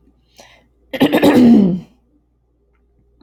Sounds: Throat clearing